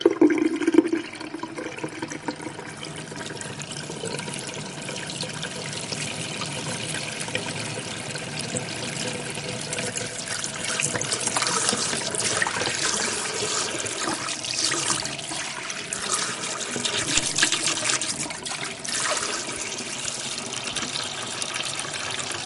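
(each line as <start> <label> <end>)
0.0 Water rapidly draining from a sink. 5.8
5.8 Tap water runs steadily. 22.5
9.9 An object being washed under running water. 22.5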